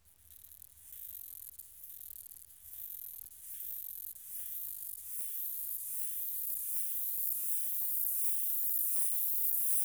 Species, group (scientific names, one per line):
Stenobothrus lineatus
Orthoptera